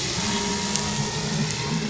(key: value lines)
label: anthrophony, boat engine
recorder: SoundTrap 500